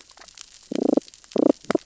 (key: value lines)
label: biophony, damselfish
recorder: SoundTrap 600 or HydroMoth